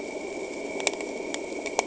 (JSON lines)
{"label": "anthrophony, boat engine", "recorder": "HydroMoth"}